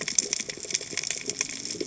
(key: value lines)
label: biophony, cascading saw
recorder: HydroMoth